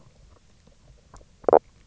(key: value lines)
label: biophony, knock croak
recorder: SoundTrap 300